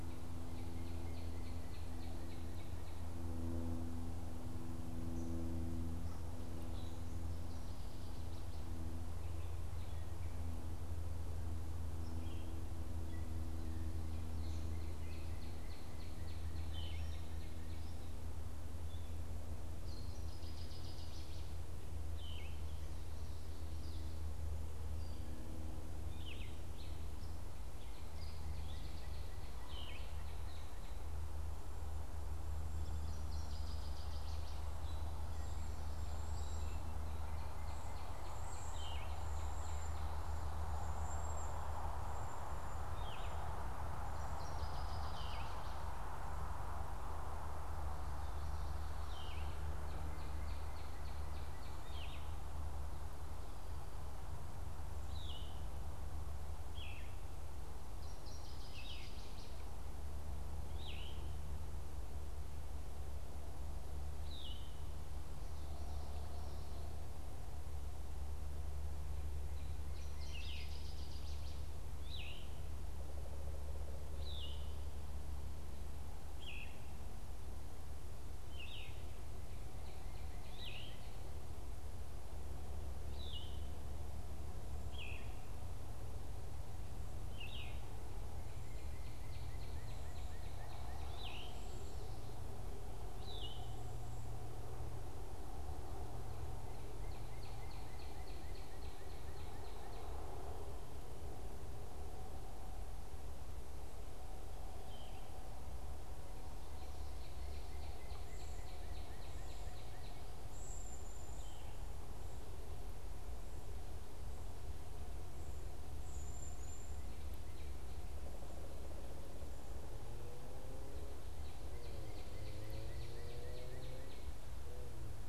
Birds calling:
Yellow-throated Vireo (Vireo flavifrons)
Gray Catbird (Dumetella carolinensis)
Northern Waterthrush (Parkesia noveboracensis)
Cedar Waxwing (Bombycilla cedrorum)
Northern Cardinal (Cardinalis cardinalis)
Pileated Woodpecker (Dryocopus pileatus)
unidentified bird

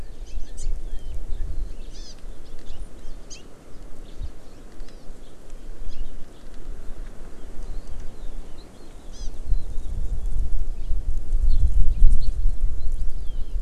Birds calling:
Red-billed Leiothrix (Leiothrix lutea)
Hawaii Amakihi (Chlorodrepanis virens)

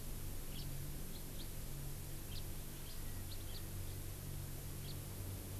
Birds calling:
House Finch (Haemorhous mexicanus)

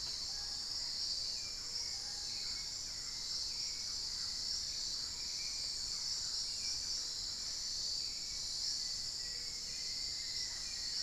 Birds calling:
Thrush-like Wren (Campylorhynchus turdinus)
Black-faced Antthrush (Formicarius analis)
unidentified bird
Hauxwell's Thrush (Turdus hauxwelli)

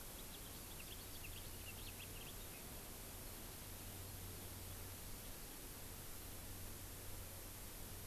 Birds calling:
House Finch (Haemorhous mexicanus)

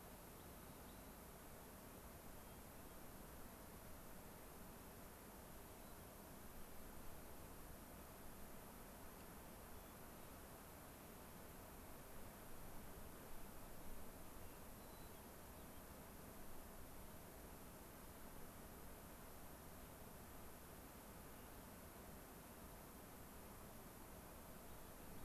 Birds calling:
Hermit Thrush (Catharus guttatus)
Rock Wren (Salpinctes obsoletus)
White-crowned Sparrow (Zonotrichia leucophrys)

